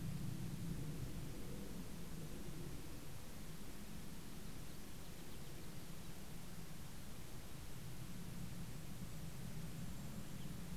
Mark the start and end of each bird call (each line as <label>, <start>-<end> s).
Golden-crowned Kinglet (Regulus satrapa), 7.4-10.7 s